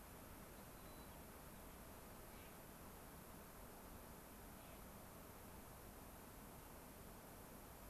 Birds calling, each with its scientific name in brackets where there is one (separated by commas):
White-crowned Sparrow (Zonotrichia leucophrys), Clark's Nutcracker (Nucifraga columbiana)